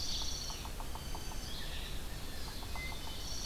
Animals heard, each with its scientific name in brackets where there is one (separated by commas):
Yellow-bellied Sapsucker (Sphyrapicus varius), Wood Thrush (Hylocichla mustelina), Red-eyed Vireo (Vireo olivaceus), Dark-eyed Junco (Junco hyemalis), Blue Jay (Cyanocitta cristata)